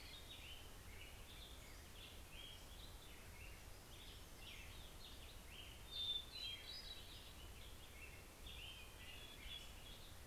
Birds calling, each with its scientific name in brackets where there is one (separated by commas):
Hermit Warbler (Setophaga occidentalis), Hermit Thrush (Catharus guttatus), Pacific-slope Flycatcher (Empidonax difficilis), Black-headed Grosbeak (Pheucticus melanocephalus)